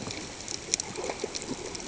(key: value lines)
label: ambient
recorder: HydroMoth